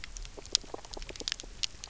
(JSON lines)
{"label": "biophony", "recorder": "SoundTrap 300"}